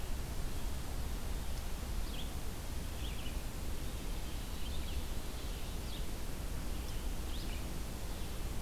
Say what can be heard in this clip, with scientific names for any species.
Vireo olivaceus